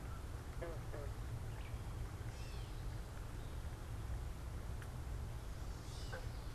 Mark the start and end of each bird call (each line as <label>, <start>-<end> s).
Gray Catbird (Dumetella carolinensis), 0.0-6.5 s